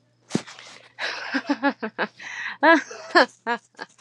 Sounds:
Laughter